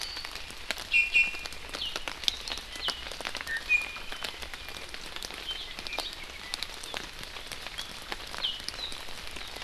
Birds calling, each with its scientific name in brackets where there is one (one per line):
Iiwi (Drepanis coccinea)